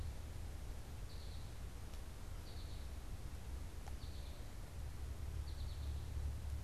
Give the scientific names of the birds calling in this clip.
Spinus tristis